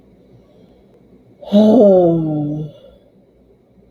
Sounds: Sigh